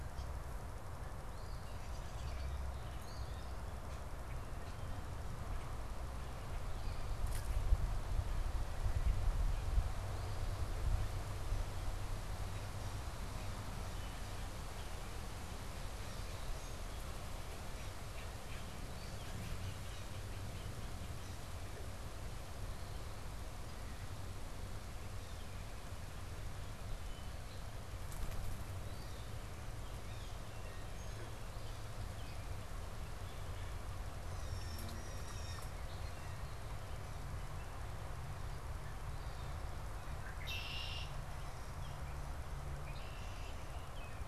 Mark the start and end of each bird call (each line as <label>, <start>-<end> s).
Eastern Phoebe (Sayornis phoebe), 1.2-3.9 s
Red-winged Blackbird (Agelaius phoeniceus), 1.8-2.9 s
Eastern Phoebe (Sayornis phoebe), 6.7-10.7 s
Song Sparrow (Melospiza melodia), 16.2-17.7 s
Red-winged Blackbird (Agelaius phoeniceus), 17.6-21.8 s
Blue Jay (Cyanocitta cristata), 25.1-30.4 s
Eastern Phoebe (Sayornis phoebe), 28.6-29.5 s
Song Sparrow (Melospiza melodia), 31.0-32.5 s
Blue Jay (Cyanocitta cristata), 34.2-35.8 s
Red-winged Blackbird (Agelaius phoeniceus), 39.9-44.3 s